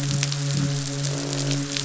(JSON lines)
{"label": "biophony, midshipman", "recorder": "SoundTrap 500"}
{"label": "biophony, croak", "recorder": "SoundTrap 500"}